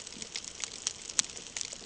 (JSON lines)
{"label": "ambient", "recorder": "HydroMoth"}